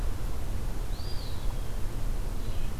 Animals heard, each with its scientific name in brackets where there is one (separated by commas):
Eastern Wood-Pewee (Contopus virens), Red-eyed Vireo (Vireo olivaceus)